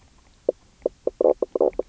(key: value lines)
label: biophony, knock croak
recorder: SoundTrap 300